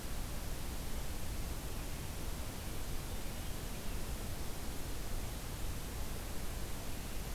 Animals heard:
forest ambience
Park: Acadia National Park